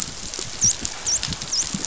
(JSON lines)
{"label": "biophony, dolphin", "recorder": "SoundTrap 500"}